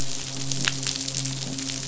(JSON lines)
{"label": "biophony, midshipman", "recorder": "SoundTrap 500"}